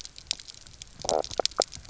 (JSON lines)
{"label": "biophony, knock croak", "recorder": "SoundTrap 300"}